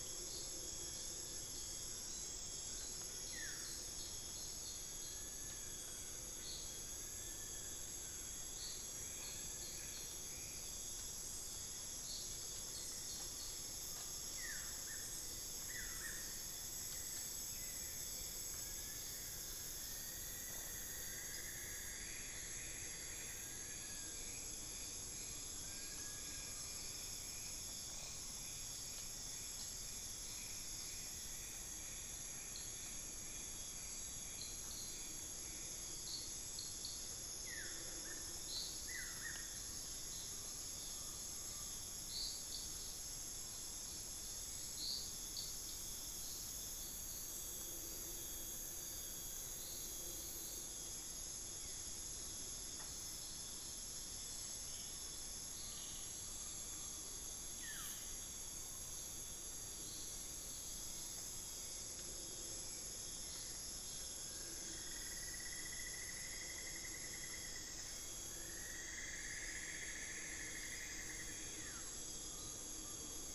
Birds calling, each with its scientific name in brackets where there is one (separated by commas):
Hauxwell's Thrush (Turdus hauxwelli), Long-billed Woodcreeper (Nasica longirostris), Cinnamon-throated Woodcreeper (Dendrexetastes rufigula), unidentified bird, Buff-throated Woodcreeper (Xiphorhynchus guttatus), Collared Forest-Falcon (Micrastur semitorquatus)